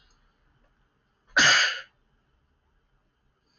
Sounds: Sneeze